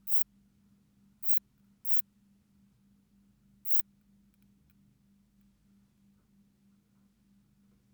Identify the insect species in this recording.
Poecilimon luschani